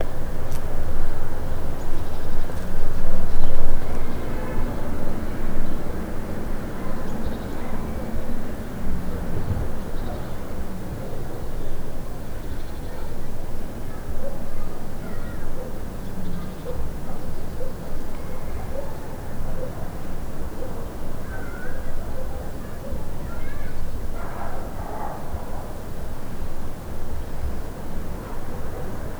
Does this take place outdoors?
yes